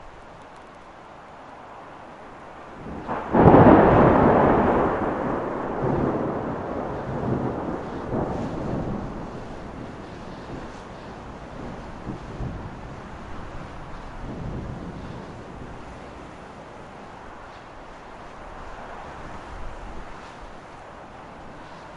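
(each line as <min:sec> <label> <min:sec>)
0:00.0 Continuous light ambient rain sounds. 0:22.0
0:02.3 A single thunderclap with slight muffling and reverb. 0:20.5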